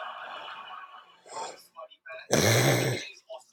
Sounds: Throat clearing